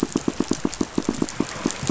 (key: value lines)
label: biophony, pulse
recorder: SoundTrap 500